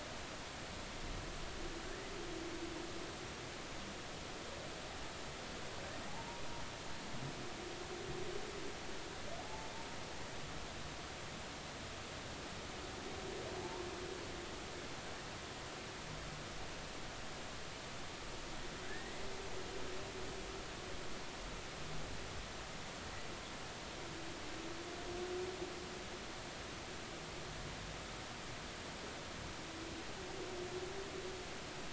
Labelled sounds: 6.1	6.4	humpback whale, 0.80 to 0.99 kHz
9.4	9.7	humpback whale, 0.80 to 0.93 kHz
18.8	19.1	humpback whale, 1.5 to 2.0 kHz

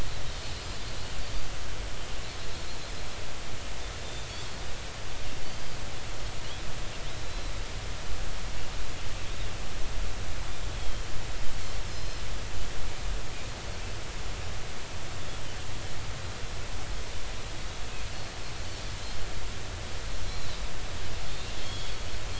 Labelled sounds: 0.3	0.6	Pacific white-sided dolphin, 4.3 to 4.4 kHz
5.4	5.8	Pacific white-sided dolphin, 3.0 to 4.8 kHz
7.2	7.5	Pacific white-sided dolphin, 3.9 to 4.1 kHz
10.7	11.1	Pacific white-sided dolphin, 3.1 to 3.4 kHz
11.9	12.2	Pacific white-sided dolphin, 4.0 to 5.3 kHz
20.3	20.6	Pacific white-sided dolphin, 3.6 to 4.3 kHz
21.6	21.9	Pacific white-sided dolphin, 3.1 to 3.5 kHz

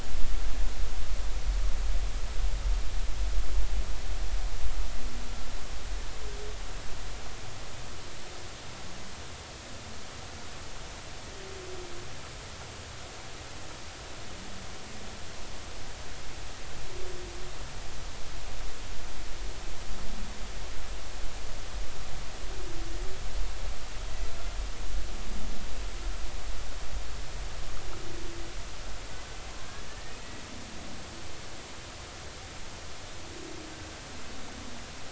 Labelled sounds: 29.9	30.4	humpback whale, 1.7 to 2.0 kHz

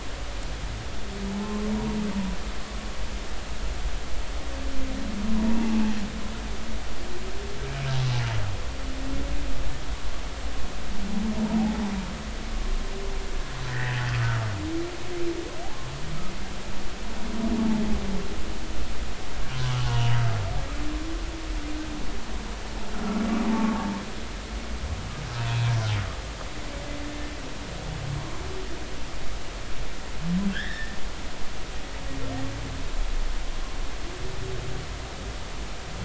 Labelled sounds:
1.4	2.0	humpback whale, 0.90 to 1.1 kHz
5.3	5.8	humpback whale, 0.80 to 1.0 kHz
11.4	11.8	humpback whale, 0.80 to 0.99 kHz
13.7	14.5	humpback whale, 1.2 to 2.0 kHz
19.9	20.1	humpback whale, 0.90 to 0.99 kHz
22.9	23.2	humpback whale, 1.3 to 1.5 kHz
30.5	31.0	humpback whale, 1.4 to 3.9 kHz

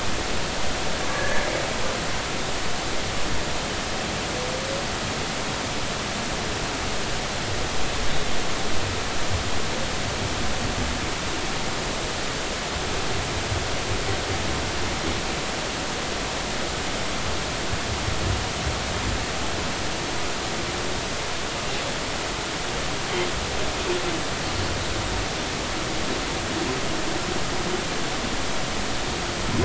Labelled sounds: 1.1	1.4	humpback whale, 1.6 to 1.8 kHz

